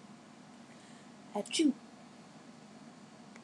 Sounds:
Sneeze